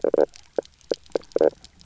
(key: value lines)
label: biophony, knock croak
recorder: SoundTrap 300